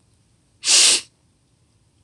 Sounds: Sniff